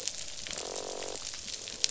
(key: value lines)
label: biophony, croak
recorder: SoundTrap 500